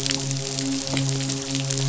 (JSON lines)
{"label": "biophony, midshipman", "recorder": "SoundTrap 500"}